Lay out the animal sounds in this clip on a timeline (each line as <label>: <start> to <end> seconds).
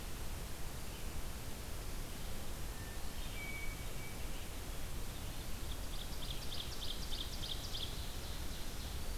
Hermit Thrush (Catharus guttatus): 2.7 to 4.3 seconds
Ovenbird (Seiurus aurocapilla): 4.7 to 9.1 seconds